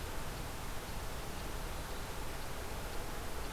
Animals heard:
forest ambience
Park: Marsh-Billings-Rockefeller National Historical Park